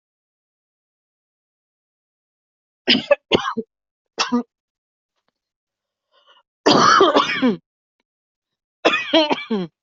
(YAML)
expert_labels:
- quality: good
  cough_type: wet
  dyspnea: false
  wheezing: false
  stridor: false
  choking: false
  congestion: false
  nothing: true
  diagnosis: lower respiratory tract infection
  severity: mild
age: 43
gender: female
respiratory_condition: false
fever_muscle_pain: false
status: COVID-19